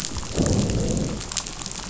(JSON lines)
{"label": "biophony, growl", "recorder": "SoundTrap 500"}